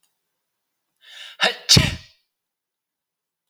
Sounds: Sneeze